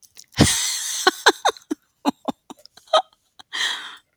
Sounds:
Laughter